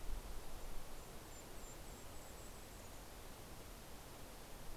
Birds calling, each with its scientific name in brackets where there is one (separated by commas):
Golden-crowned Kinglet (Regulus satrapa)